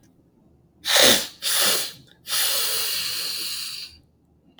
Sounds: Sniff